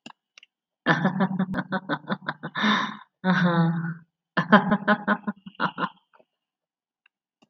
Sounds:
Laughter